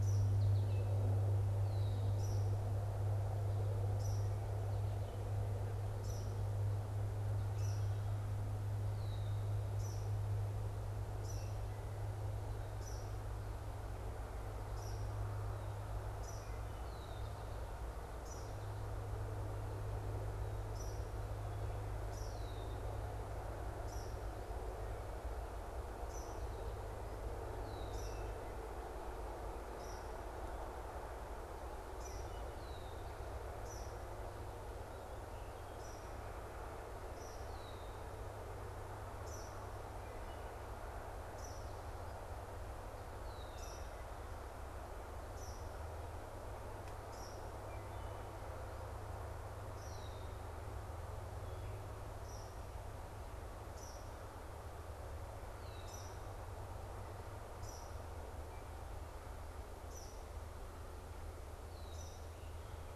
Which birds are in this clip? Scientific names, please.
Spinus tristis, Tyrannus tyrannus, Agelaius phoeniceus, Hylocichla mustelina, Melospiza melodia